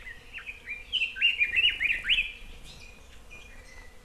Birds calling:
Red-billed Leiothrix (Leiothrix lutea)

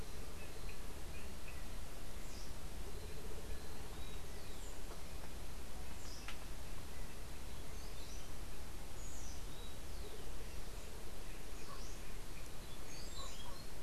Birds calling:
Orange-billed Nightingale-Thrush (Catharus aurantiirostris)

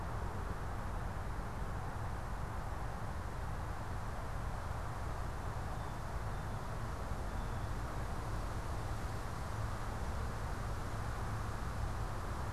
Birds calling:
Blue Jay (Cyanocitta cristata)

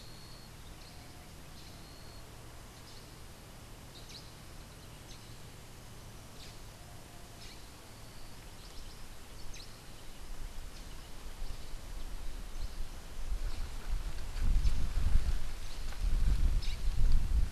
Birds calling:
Black-headed Saltator (Saltator atriceps)
Rufous-tailed Hummingbird (Amazilia tzacatl)

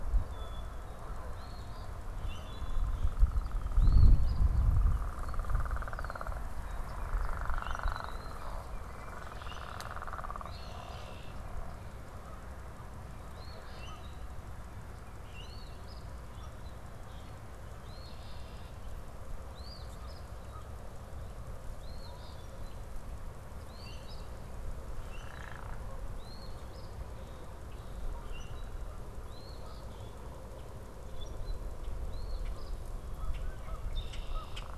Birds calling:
Red-winged Blackbird (Agelaius phoeniceus)
Eastern Phoebe (Sayornis phoebe)
Canada Goose (Branta canadensis)
Common Grackle (Quiscalus quiscula)
unidentified bird

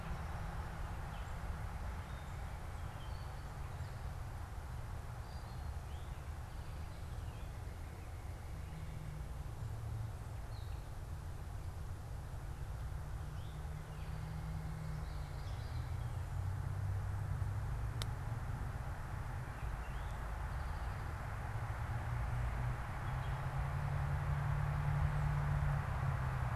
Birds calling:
Eastern Towhee (Pipilo erythrophthalmus)

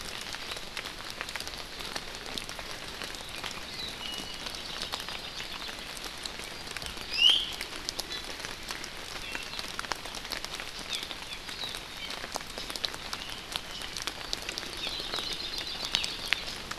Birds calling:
Iiwi (Drepanis coccinea)
Hawaii Creeper (Loxops mana)

